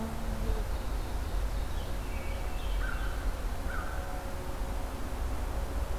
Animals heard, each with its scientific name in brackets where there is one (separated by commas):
Ovenbird (Seiurus aurocapilla), American Crow (Corvus brachyrhynchos), Hermit Thrush (Catharus guttatus)